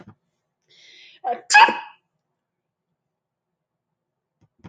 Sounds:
Sneeze